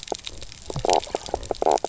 {"label": "biophony, knock croak", "recorder": "SoundTrap 300"}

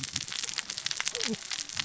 {"label": "biophony, cascading saw", "recorder": "SoundTrap 600 or HydroMoth"}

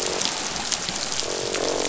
{"label": "biophony, croak", "recorder": "SoundTrap 500"}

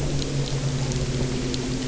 {"label": "anthrophony, boat engine", "recorder": "SoundTrap 300"}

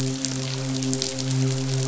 {"label": "biophony, midshipman", "recorder": "SoundTrap 500"}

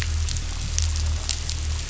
{"label": "anthrophony, boat engine", "recorder": "SoundTrap 500"}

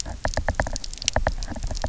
{"label": "biophony, knock", "recorder": "SoundTrap 300"}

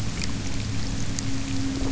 {"label": "anthrophony, boat engine", "recorder": "SoundTrap 300"}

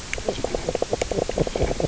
{"label": "biophony, knock croak", "recorder": "SoundTrap 300"}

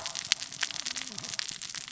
{"label": "biophony, cascading saw", "recorder": "SoundTrap 600 or HydroMoth"}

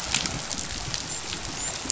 {"label": "biophony, dolphin", "recorder": "SoundTrap 500"}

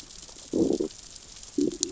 {"label": "biophony, growl", "recorder": "SoundTrap 600 or HydroMoth"}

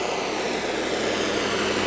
{"label": "anthrophony, boat engine", "recorder": "SoundTrap 500"}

